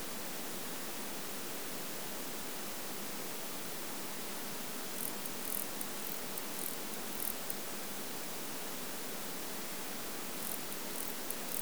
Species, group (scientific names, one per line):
Barbitistes ocskayi
Orthoptera